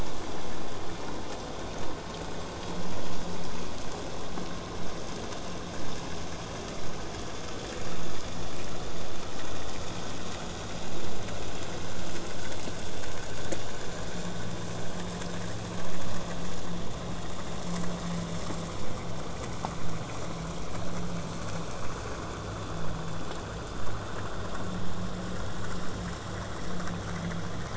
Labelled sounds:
22.8	27.7	vessel noise, 0 to 8.0 kHz

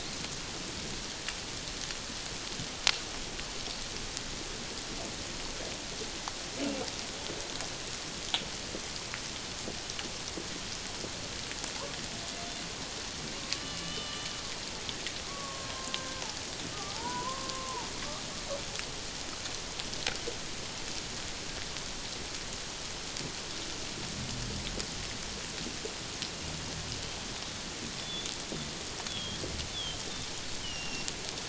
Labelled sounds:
13.6	14.3	killer whale, Bigg's (transient), 1.1 to 3.1 kHz
15.3	17.9	killer whale, Bigg's (transient), 0.78 to 1.6 kHz
28.0	28.3	killer whale, Bigg's (transient), 3.3 to 3.7 kHz
29.1	30.0	killer whale, Bigg's (transient), 3.1 to 3.6 kHz
30.6	31.1	killer whale, Bigg's (transient), 2.7 to 3.2 kHz

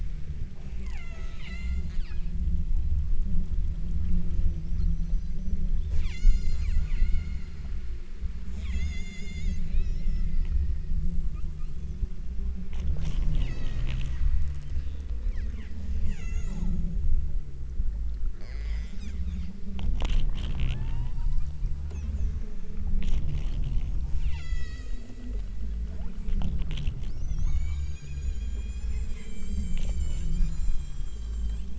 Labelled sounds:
0.9	2.6	killer whale, southern Alaska resident, 0.50 to 8.0 kHz
5.9	7.8	killer whale, southern Alaska resident, 0.66 to 8.0 kHz
8.6	12.1	killer whale, southern Alaska resident, 0.89 to 8.0 kHz
13.5	14.1	killer whale, southern Alaska resident, 0.78 to 8.0 kHz
15.4	16.8	killer whale, southern Alaska resident, 0.64 to 8.0 kHz
18.4	19.7	killer whale, southern Alaska resident, 0.43 to 8.0 kHz
20.8	21.6	killer whale, southern Alaska resident, 0.62 to 5.4 kHz
24.1	25.1	killer whale, southern Alaska resident, 0.66 to 8.0 kHz
27.3	31.7	killer whale, southern Alaska resident, 0.68 to 8.0 kHz

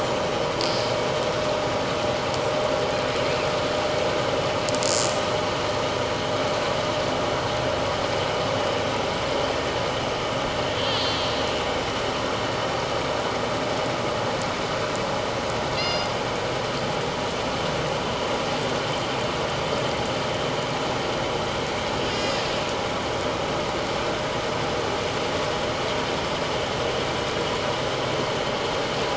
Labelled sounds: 0.4	0.8	killer whale, northern resident, 4.6 to 5.2 kHz
10.9	11.2	killer whale, northern resident, 3.1 to 3.5 kHz
15.7	16.1	killer whale, northern resident, G clan, call N24ii, 2.7 to 6.4 kHz
22.1	22.4	killer whale, northern resident, G clan, 1.9 to 6.9 kHz

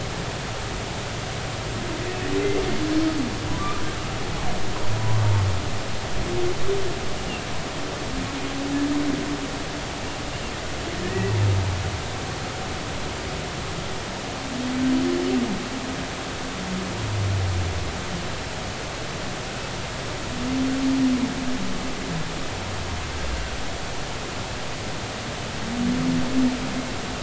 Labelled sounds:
5.0	5.2	humpback whale, 0.96 to 1.1 kHz
11.0	11.4	humpback whale, 1.7 to 2.0 kHz

